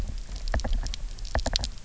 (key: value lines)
label: biophony, knock
recorder: SoundTrap 300